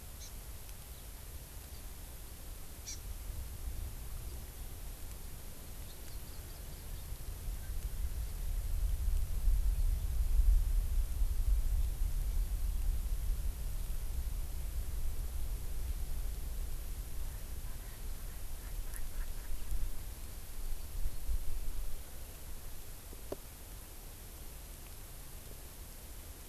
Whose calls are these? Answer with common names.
Hawaii Amakihi